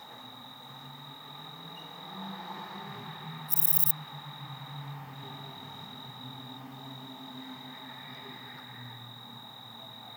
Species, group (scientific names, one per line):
Antaxius difformis
Orthoptera